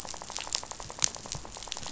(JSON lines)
{"label": "biophony, rattle", "recorder": "SoundTrap 500"}